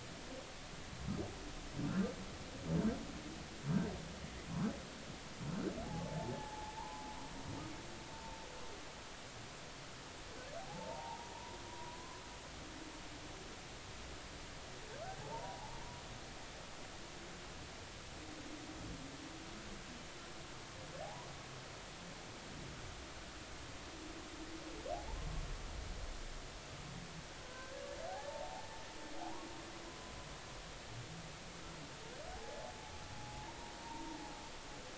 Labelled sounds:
5.8	7.0	humpback whale, 0.80 to 1.1 kHz
10.6	12.2	humpback whale, 0.80 to 1.1 kHz
15.2	16.0	humpback whale, 0.80 to 1.0 kHz
21.0	21.3	humpback whale, 0.80 to 1.1 kHz
27.4	28.7	humpback whale, 0.80 to 1.6 kHz
32.3	32.7	humpback whale, 0.80 to 0.90 kHz
33.1	34.2	humpback whale, 0.80 to 1.0 kHz

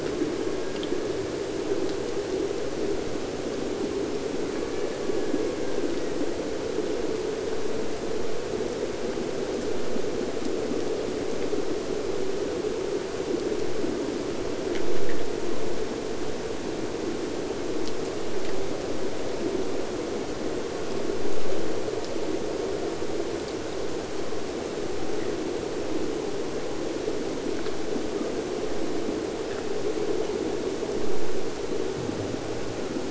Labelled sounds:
0.0	2.0	killer whale, Bigg's (transient), AT1 transient, 1.3 to 2.5 kHz
4.4	6.1	killer whale, Bigg's (transient), AT1 transient, 0.98 to 3.0 kHz

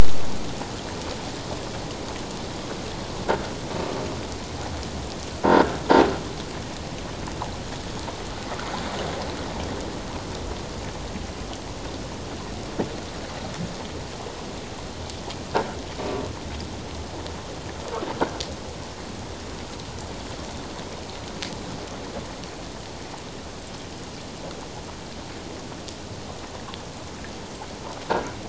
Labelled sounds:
5.4	5.6	croaking sound likely from a nearby submerged object, 1.3 to 1.6 kHz

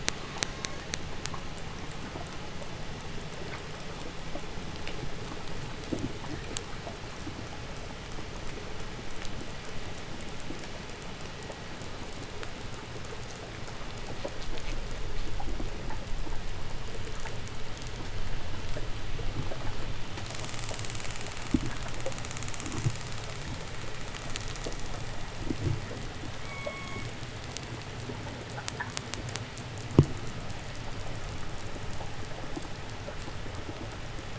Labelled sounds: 0.2	1.0	killer whale, 0.84 to 6.8 kHz
26.2	27.2	killer whale, call S16, 0.93 to 7.8 kHz

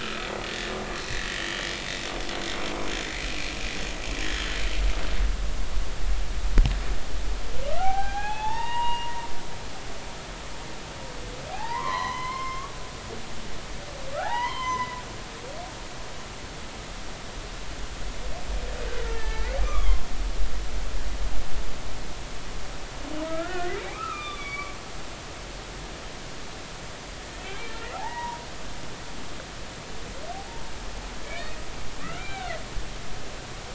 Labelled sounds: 0.0	0.3	humpback whale, 2.4 to 2.5 kHz
1.4	2.0	humpback whale, 2.9 to 3.7 kHz
3.2	3.5	humpback whale, 2.2 to 2.6 kHz
4.2	4.5	humpback whale, 3.0 to 3.3 kHz
7.8	9.1	humpback whale, 0.80 to 3.8 kHz
11.5	12.7	humpback whale, 0.80 to 5.3 kHz
14.1	15.0	humpback whale, 0.80 to 5.2 kHz
19.1	20.0	humpback whale, 0.99 to 2.8 kHz
23.2	25.5	humpback whale, 0.99 to 4.7 kHz
27.4	28.4	humpback whale, 0.80 to 2.4 kHz
31.3	31.6	humpback whale, 1.7 to 2.6 kHz
32.0	32.6	humpback whale, 1.1 to 2.4 kHz

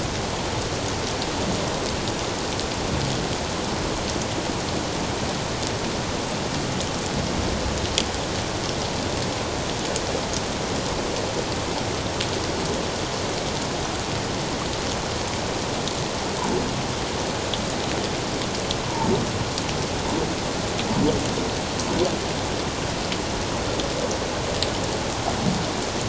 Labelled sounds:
18.8	19.1	humpback whale, 0.84 to 1.0 kHz

